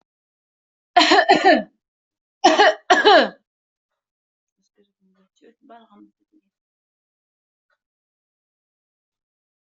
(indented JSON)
{
  "expert_labels": [
    {
      "quality": "good",
      "cough_type": "dry",
      "dyspnea": false,
      "wheezing": false,
      "stridor": false,
      "choking": false,
      "congestion": false,
      "nothing": true,
      "diagnosis": "upper respiratory tract infection",
      "severity": "mild"
    }
  ]
}